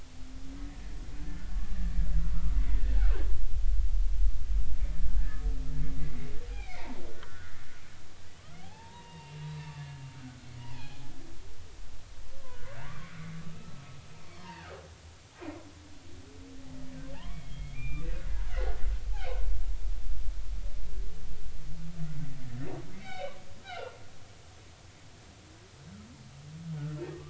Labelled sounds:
2.9	3.3	humpback whale, 1.2 to 1.8 kHz
5.2	7.6	humpback whale, 0.80 to 2.6 kHz
8.6	9.8	humpback whale, 0.80 to 2.9 kHz
10.2	11.0	humpback whale, 0.80 to 3.5 kHz
12.4	13.1	humpback whale, 0.86 to 1.6 kHz
13.5	13.7	humpback whale, 1.2 to 1.4 kHz
14.4	14.8	humpback whale, 0.80 to 2.9 kHz
17.1	18.8	humpback whale, 0.80 to 3.6 kHz
22.4	24.0	humpback whale, 1.3 to 3.9 kHz

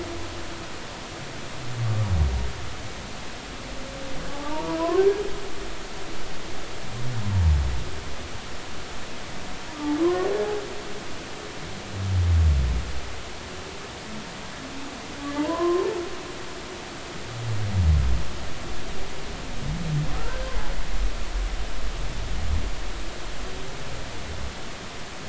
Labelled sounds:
4.3	4.8	humpback whale, 0.80 to 1.0 kHz
10.0	10.3	humpback whale, 0.96 to 1.2 kHz
15.3	15.9	humpback whale, 0.83 to 1.1 kHz
20.2	20.4	humpback whale, 1.2 to 1.6 kHz

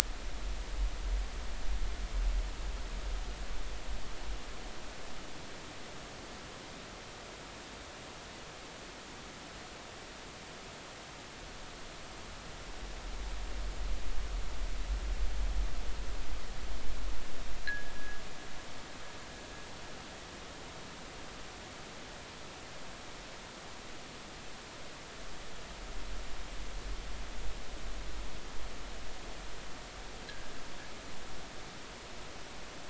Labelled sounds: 17.7	18.2	fishing gear, 1.5 to 1.8 kHz
30.2	30.5	fishing gear, 1.5 to 1.8 kHz

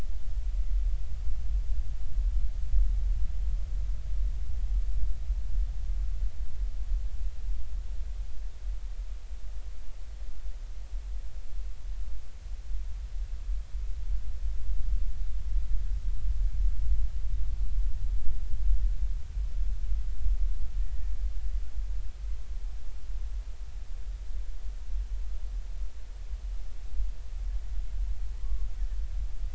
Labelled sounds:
20.8	21.1	killer whale, Bigg's (transient), 1.7 to 2.0 kHz
28.4	28.7	killer whale, Bigg's (transient), 0.93 to 1.2 kHz

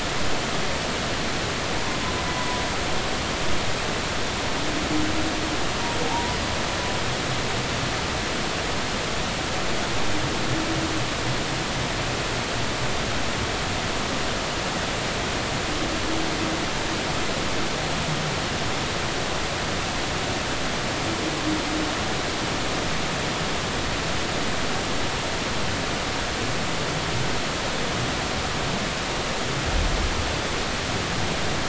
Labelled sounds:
2.2	2.5	humpback whale, 1.95 to 2.02 kHz
6.0	6.4	humpback whale, 0.80 to 1.0 kHz

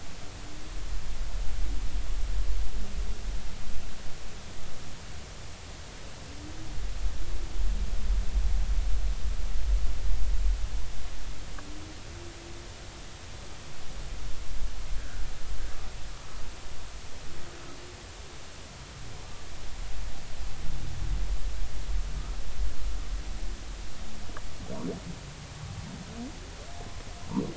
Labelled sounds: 15.0	15.2	humpback whale, 1.4 to 1.7 kHz

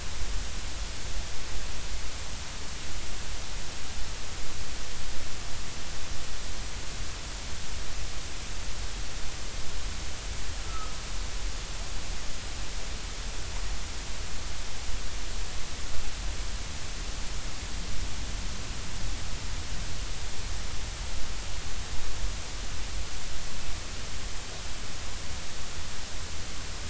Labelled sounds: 10.6	10.9	humpback whale, 1.2 to 1.4 kHz

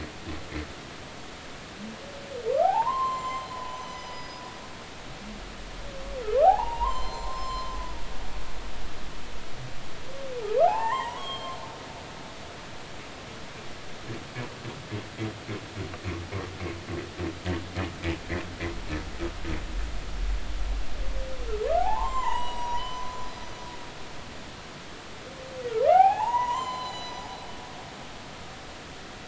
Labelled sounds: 2.6	4.4	humpback whale, 0.80 to 7.4 kHz
6.4	7.7	humpback whale, 0.80 to 7.4 kHz
10.6	11.6	humpback whale, 0.80 to 7.7 kHz
21.8	23.7	humpback whale, 0.80 to 8.0 kHz
25.9	27.2	humpback whale, 0.80 to 7.4 kHz

